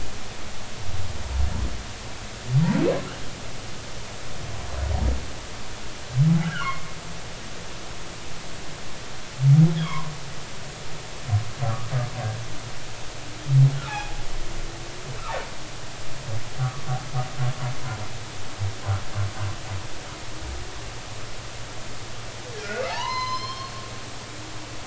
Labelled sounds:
6.4	6.9	humpback whale, 0.96 to 2.2 kHz
9.8	10.1	humpback whale, 0.90 to 3.5 kHz
13.8	14.2	humpback whale, 0.80 to 3.6 kHz
22.6	23.8	humpback whale, 0.80 to 6.2 kHz

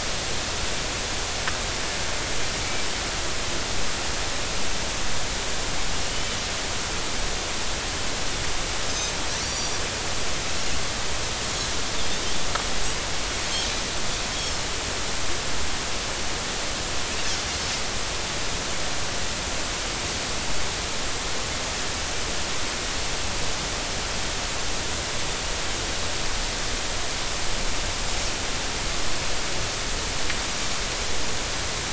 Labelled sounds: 6.0	6.4	Pacific white-sided dolphin, 2.8 to 3.1 kHz
8.9	9.1	Pacific white-sided dolphin, 6.1 to 6.3 kHz
9.4	9.8	Pacific white-sided dolphin, 4.5 to 7.0 kHz

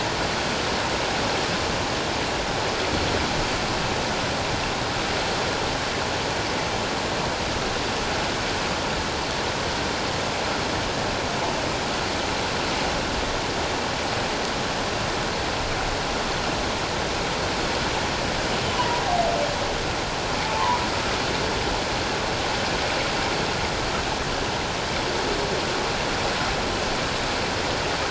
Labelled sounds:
20.4	20.8	humpback whale, 0.84 to 1.1 kHz

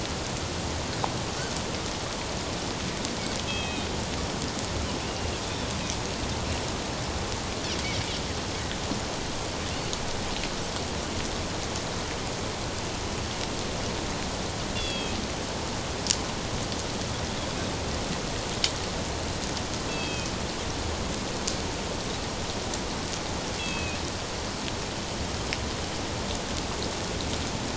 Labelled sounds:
3.4	3.9	Pacific white-sided dolphin, 2.4 to 3.3 kHz
14.7	15.2	Pacific white-sided dolphin, 2.5 to 4.8 kHz
19.9	20.3	Pacific white-sided dolphin, 2.4 to 4.7 kHz
23.6	24.0	Pacific white-sided dolphin, 2.4 to 2.8 kHz

